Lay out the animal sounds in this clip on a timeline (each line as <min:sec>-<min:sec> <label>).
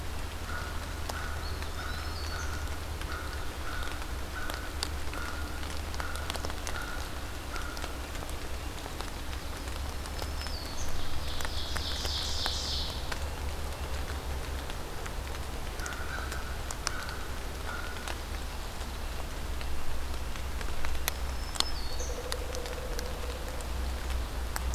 0:00.2-0:08.2 American Crow (Corvus brachyrhynchos)
0:01.3-0:02.4 Black-throated Green Warbler (Setophaga virens)
0:01.3-0:02.8 Eastern Wood-Pewee (Contopus virens)
0:09.6-0:11.1 Black-throated Green Warbler (Setophaga virens)
0:10.9-0:13.1 Ovenbird (Seiurus aurocapilla)
0:15.6-0:18.3 American Crow (Corvus brachyrhynchos)
0:21.0-0:22.3 Black-throated Green Warbler (Setophaga virens)
0:21.8-0:23.6 Pileated Woodpecker (Dryocopus pileatus)